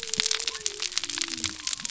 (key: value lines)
label: biophony
recorder: SoundTrap 300